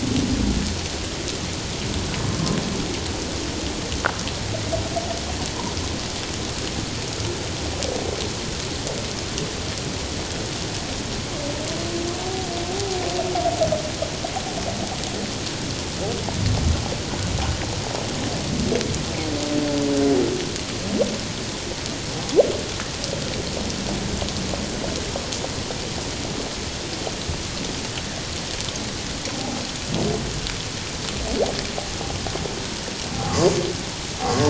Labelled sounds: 2.2	2.6	humpback whale, 1.0 to 1.1 kHz
12.7	13.0	humpback whale, 0.78 to 0.84 kHz
29.3	29.6	humpback whale, 0.78 to 0.91 kHz
33.2	33.5	humpback whale, 1.0 to 1.3 kHz
34.2	34.4	humpback whale, 1.0 to 1.2 kHz

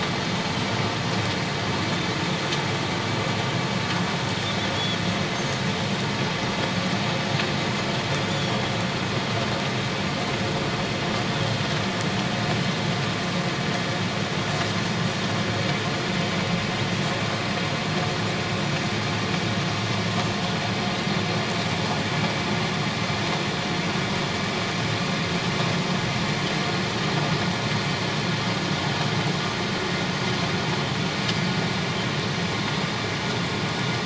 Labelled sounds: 8.3	8.6	Pacific white-sided dolphin, 3.2 to 3.5 kHz

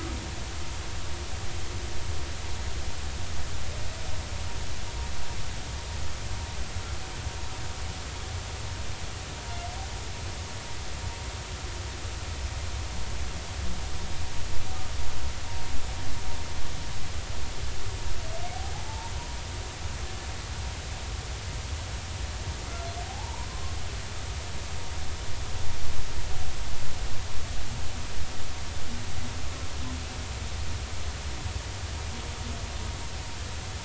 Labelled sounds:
19.9	20.1	humpback whale, 0.83 to 0.96 kHz
23.1	23.8	humpback whale, 0.80 to 1.1 kHz

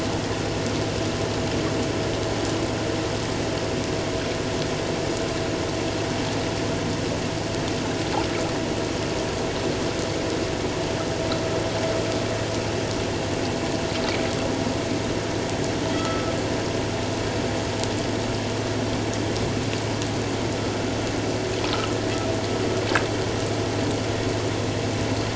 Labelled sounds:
15.9	16.3	vessel noise, 1.2 to 3.4 kHz

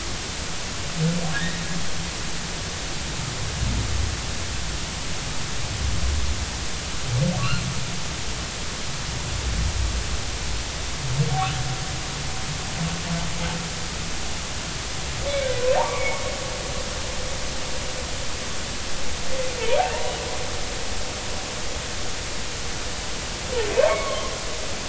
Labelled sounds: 1.3	1.6	humpback whale, 1.6 to 2.0 kHz
15.8	16.3	humpback whale, 0.80 to 2.4 kHz
23.8	24.3	humpback whale, 0.99 to 2.3 kHz

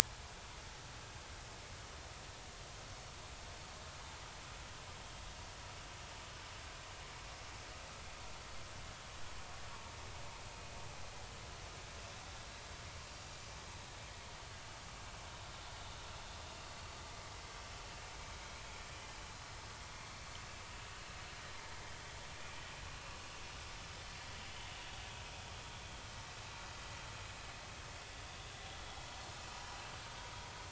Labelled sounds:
28.1	28.4	vessel noise, 3.3 to 3.6 kHz
29.1	29.3	vessel noise, 4.2 to 4.5 kHz

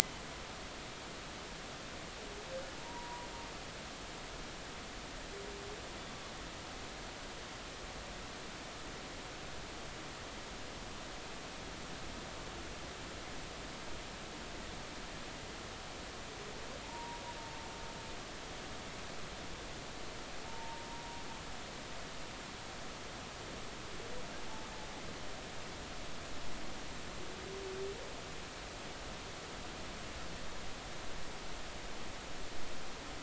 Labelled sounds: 2.8	3.3	humpback whale, 0.90 to 1.0 kHz
16.8	17.2	humpback whale, 0.83 to 0.99 kHz
20.5	20.9	humpback whale, 0.86 to 0.99 kHz

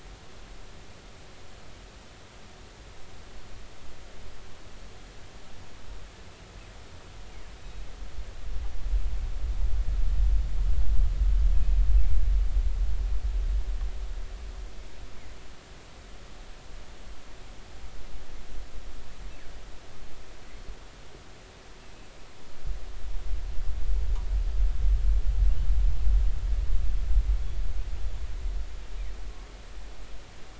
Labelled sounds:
7.6	7.8	killer whale, northern resident, G clan, 3.7 to 3.9 kHz

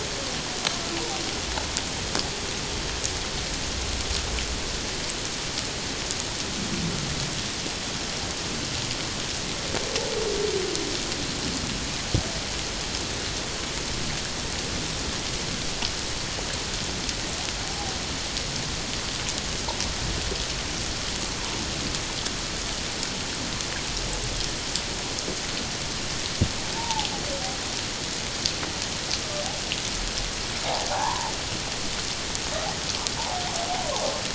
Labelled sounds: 26.8	27.1	humpback whale, 0.78 to 1.0 kHz
30.9	31.3	humpback whale, 0.78 to 1.1 kHz
33.2	33.4	humpback whale, 0.78 to 1.0 kHz

